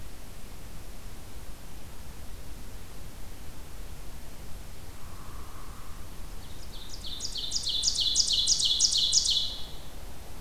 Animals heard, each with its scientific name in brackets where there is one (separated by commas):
Hairy Woodpecker (Dryobates villosus), Ovenbird (Seiurus aurocapilla)